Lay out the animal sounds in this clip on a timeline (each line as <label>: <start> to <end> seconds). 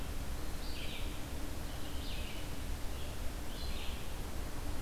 Red-eyed Vireo (Vireo olivaceus): 0.0 to 4.8 seconds